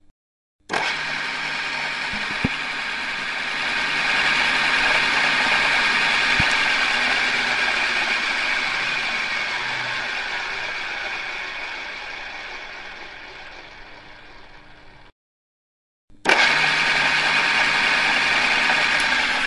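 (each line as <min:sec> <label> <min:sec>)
0:00.0 A drill press runs with the sound of its motor. 0:19.5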